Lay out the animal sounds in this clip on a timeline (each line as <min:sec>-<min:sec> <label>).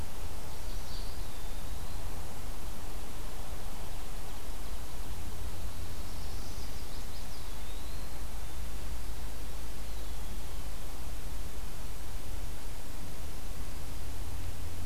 0:00.1-0:01.1 Chestnut-sided Warbler (Setophaga pensylvanica)
0:00.8-0:02.1 Eastern Wood-Pewee (Contopus virens)
0:05.6-0:06.7 Black-throated Blue Warbler (Setophaga caerulescens)
0:06.5-0:07.4 Chestnut-sided Warbler (Setophaga pensylvanica)
0:07.2-0:08.3 Eastern Wood-Pewee (Contopus virens)
0:09.6-0:10.8 Eastern Wood-Pewee (Contopus virens)